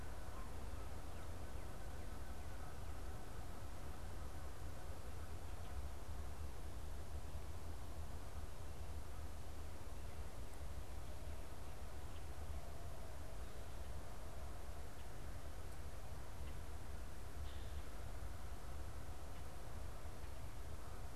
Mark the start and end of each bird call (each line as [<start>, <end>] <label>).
[0.00, 5.41] Canada Goose (Branta canadensis)
[0.81, 3.21] Northern Cardinal (Cardinalis cardinalis)